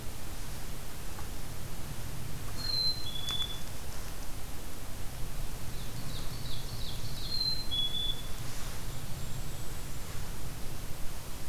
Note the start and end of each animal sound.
[2.40, 3.66] Black-capped Chickadee (Poecile atricapillus)
[5.54, 7.33] Ovenbird (Seiurus aurocapilla)
[7.07, 8.32] Black-capped Chickadee (Poecile atricapillus)
[8.16, 9.79] Ovenbird (Seiurus aurocapilla)
[8.62, 10.35] Golden-crowned Kinglet (Regulus satrapa)

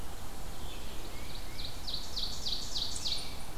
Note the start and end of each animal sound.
[0.00, 1.40] Black-and-white Warbler (Mniotilta varia)
[0.34, 3.58] Red-eyed Vireo (Vireo olivaceus)
[0.93, 3.50] Ovenbird (Seiurus aurocapilla)
[1.07, 1.82] Tufted Titmouse (Baeolophus bicolor)
[2.85, 3.58] American Robin (Turdus migratorius)

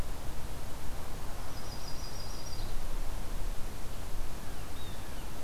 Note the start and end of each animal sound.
[1.37, 2.81] Yellow-rumped Warbler (Setophaga coronata)
[4.38, 5.31] Blue Jay (Cyanocitta cristata)

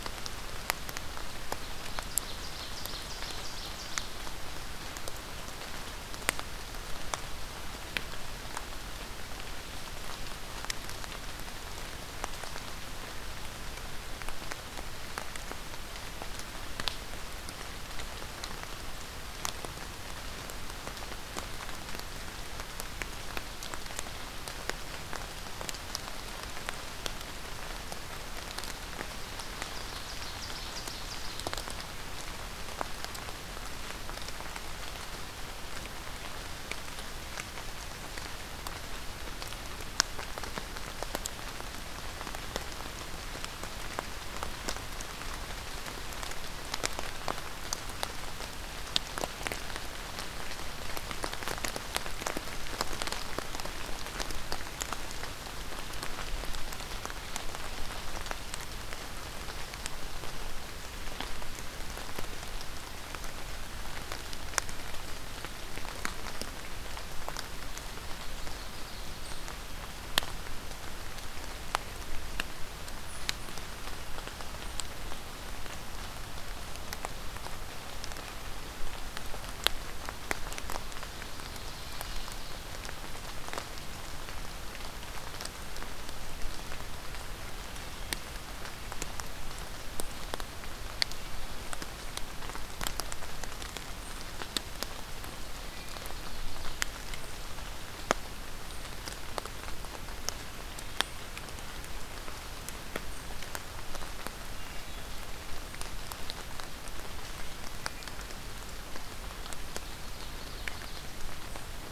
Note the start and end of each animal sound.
[1.71, 4.26] Ovenbird (Seiurus aurocapilla)
[29.32, 31.77] Ovenbird (Seiurus aurocapilla)
[68.00, 69.57] Ovenbird (Seiurus aurocapilla)
[80.95, 82.69] Ovenbird (Seiurus aurocapilla)
[95.16, 96.86] Ovenbird (Seiurus aurocapilla)
[109.39, 111.14] Ovenbird (Seiurus aurocapilla)

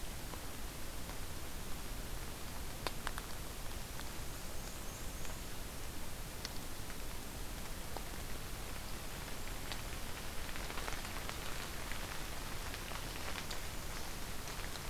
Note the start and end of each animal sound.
[3.92, 5.41] Black-and-white Warbler (Mniotilta varia)

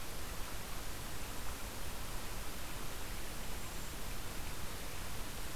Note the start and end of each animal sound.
[3.44, 4.10] Cedar Waxwing (Bombycilla cedrorum)

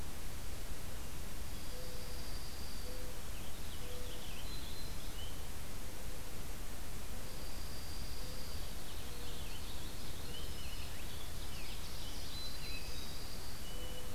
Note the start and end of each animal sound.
[1.29, 3.02] Dark-eyed Junco (Junco hyemalis)
[1.57, 4.32] Mourning Dove (Zenaida macroura)
[3.27, 5.37] Purple Finch (Haemorhous purpureus)
[3.56, 5.20] Black-throated Green Warbler (Setophaga virens)
[7.16, 8.84] Dark-eyed Junco (Junco hyemalis)
[8.25, 14.14] Purple Finch (Haemorhous purpureus)
[10.21, 11.02] Black-throated Green Warbler (Setophaga virens)
[12.20, 13.78] Dark-eyed Junco (Junco hyemalis)

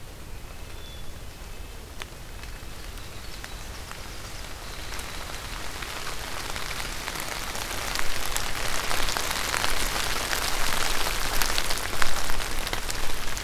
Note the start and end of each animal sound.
[0.00, 2.88] White-breasted Nuthatch (Sitta carolinensis)
[0.73, 1.82] Black-capped Chickadee (Poecile atricapillus)
[2.56, 5.61] Winter Wren (Troglodytes hiemalis)
[8.69, 9.75] Eastern Wood-Pewee (Contopus virens)

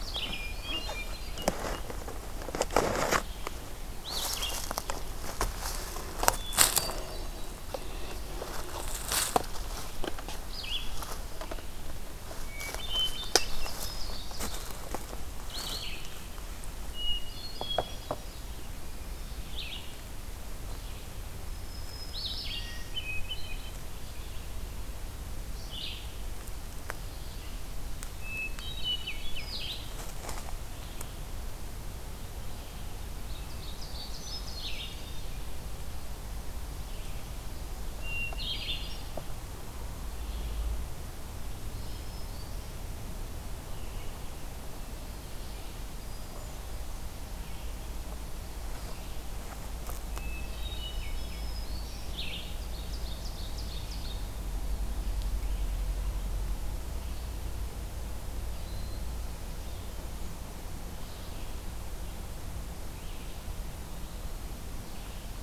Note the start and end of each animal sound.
[0.00, 0.69] Red-eyed Vireo (Vireo olivaceus)
[0.00, 1.61] Hermit Thrush (Catharus guttatus)
[3.95, 4.77] Red-eyed Vireo (Vireo olivaceus)
[6.18, 7.79] Hermit Thrush (Catharus guttatus)
[10.36, 11.11] Red-eyed Vireo (Vireo olivaceus)
[12.28, 13.89] Hermit Thrush (Catharus guttatus)
[13.17, 14.76] Ovenbird (Seiurus aurocapilla)
[15.31, 16.07] Red-eyed Vireo (Vireo olivaceus)
[16.70, 18.31] Hermit Thrush (Catharus guttatus)
[19.32, 20.07] Red-eyed Vireo (Vireo olivaceus)
[21.50, 23.12] Black-throated Green Warbler (Setophaga virens)
[22.00, 22.75] Red-eyed Vireo (Vireo olivaceus)
[22.39, 24.00] Hermit Thrush (Catharus guttatus)
[25.47, 26.22] Red-eyed Vireo (Vireo olivaceus)
[28.14, 29.75] Hermit Thrush (Catharus guttatus)
[29.23, 29.98] Red-eyed Vireo (Vireo olivaceus)
[33.15, 34.88] Ovenbird (Seiurus aurocapilla)
[33.74, 35.35] Hermit Thrush (Catharus guttatus)
[37.68, 39.30] Hermit Thrush (Catharus guttatus)
[38.28, 39.04] Red-eyed Vireo (Vireo olivaceus)
[41.68, 42.75] Black-throated Green Warbler (Setophaga virens)
[45.82, 46.95] Hermit Thrush (Catharus guttatus)
[50.11, 51.72] Hermit Thrush (Catharus guttatus)
[50.74, 52.25] Black-throated Green Warbler (Setophaga virens)
[51.87, 52.62] Red-eyed Vireo (Vireo olivaceus)
[52.28, 54.42] Ovenbird (Seiurus aurocapilla)

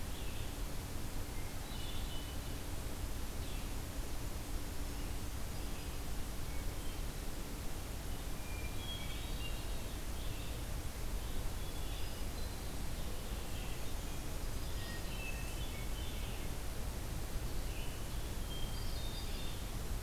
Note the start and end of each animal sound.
[0.00, 20.03] Red-eyed Vireo (Vireo olivaceus)
[1.28, 2.53] Hermit Thrush (Catharus guttatus)
[8.21, 10.05] Hermit Thrush (Catharus guttatus)
[11.66, 12.99] Black-throated Green Warbler (Setophaga virens)
[14.60, 16.59] Hermit Thrush (Catharus guttatus)
[18.32, 19.62] Hermit Thrush (Catharus guttatus)

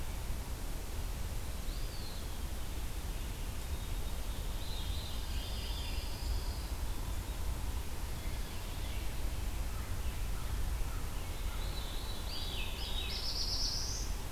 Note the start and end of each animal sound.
[1.34, 2.54] Eastern Wood-Pewee (Contopus virens)
[4.52, 6.19] Veery (Catharus fuscescens)
[4.78, 6.79] Pine Warbler (Setophaga pinus)
[11.24, 13.23] Veery (Catharus fuscescens)
[12.05, 14.32] Black-throated Blue Warbler (Setophaga caerulescens)

